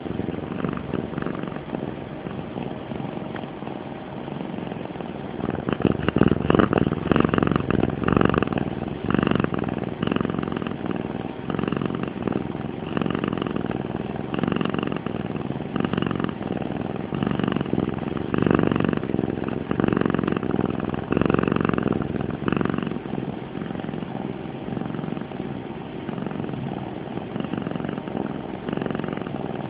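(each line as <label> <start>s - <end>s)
A cat purrs softly. 0.1s - 5.6s
A cat is purring loudly. 5.6s - 23.1s
A cat purrs softly. 23.1s - 29.7s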